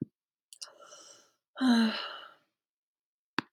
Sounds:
Sigh